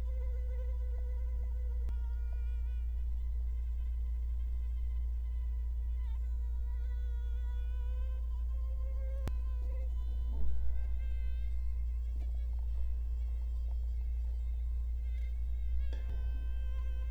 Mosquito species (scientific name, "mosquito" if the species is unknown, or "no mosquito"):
Culex quinquefasciatus